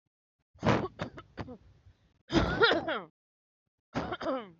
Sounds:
Cough